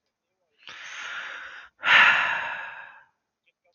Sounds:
Sigh